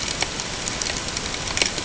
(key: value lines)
label: ambient
recorder: HydroMoth